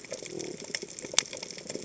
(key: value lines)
label: biophony
recorder: HydroMoth